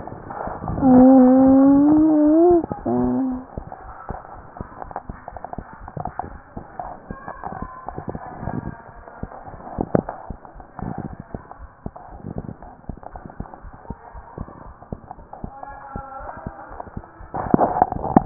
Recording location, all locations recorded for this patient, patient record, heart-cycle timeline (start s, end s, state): pulmonary valve (PV)
aortic valve (AV)+pulmonary valve (PV)
#Age: Child
#Sex: Female
#Height: 132.0 cm
#Weight: 38.1 kg
#Pregnancy status: False
#Murmur: Absent
#Murmur locations: nan
#Most audible location: nan
#Systolic murmur timing: nan
#Systolic murmur shape: nan
#Systolic murmur grading: nan
#Systolic murmur pitch: nan
#Systolic murmur quality: nan
#Diastolic murmur timing: nan
#Diastolic murmur shape: nan
#Diastolic murmur grading: nan
#Diastolic murmur pitch: nan
#Diastolic murmur quality: nan
#Outcome: Normal
#Campaign: 2015 screening campaign
0.00	13.62	unannotated
13.62	13.76	S1
13.76	13.86	systole
13.86	13.98	S2
13.98	14.12	diastole
14.12	14.26	S1
14.26	14.36	systole
14.36	14.48	S2
14.48	14.64	diastole
14.64	14.78	S1
14.78	14.88	systole
14.88	15.00	S2
15.00	15.15	diastole
15.15	15.28	S1
15.28	15.38	systole
15.38	15.50	S2
15.50	15.67	diastole
15.67	15.80	S1
15.80	15.92	systole
15.92	16.06	S2
16.06	16.17	diastole
16.17	16.32	S1
16.32	16.44	systole
16.44	16.54	S2
16.54	16.69	diastole
16.69	16.82	S1
16.82	16.94	systole
16.94	17.04	S2
17.04	17.18	diastole
17.18	17.30	S1
17.30	18.26	unannotated